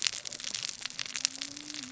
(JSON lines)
{"label": "biophony, cascading saw", "recorder": "SoundTrap 600 or HydroMoth"}